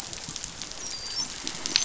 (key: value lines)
label: biophony, dolphin
recorder: SoundTrap 500